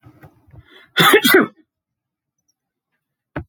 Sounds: Sneeze